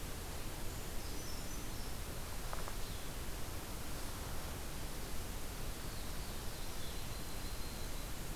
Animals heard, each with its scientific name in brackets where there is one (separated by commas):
Black-throated Blue Warbler (Setophaga caerulescens), Brown Creeper (Certhia americana), Yellow-rumped Warbler (Setophaga coronata)